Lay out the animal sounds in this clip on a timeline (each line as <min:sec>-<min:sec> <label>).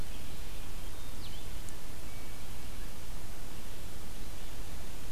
0:00.0-0:05.1 Red-eyed Vireo (Vireo olivaceus)
0:01.1-0:01.6 Blue-headed Vireo (Vireo solitarius)
0:01.8-0:02.8 Hermit Thrush (Catharus guttatus)